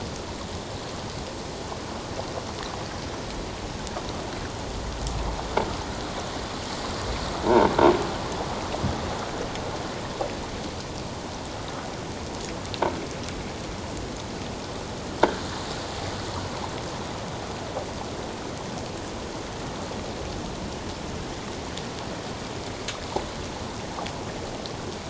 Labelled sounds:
7.5	7.7	croaking sound likely from a nearby submerged object, 0.88 to 1.0 kHz

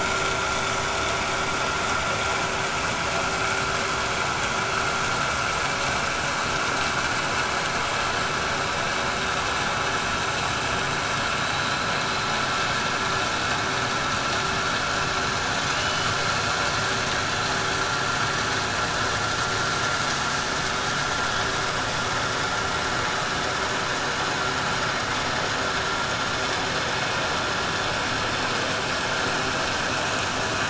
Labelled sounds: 15.6	16.1	killer whale, 2.1 to 3.5 kHz

